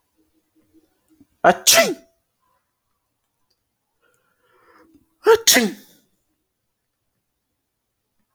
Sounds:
Sneeze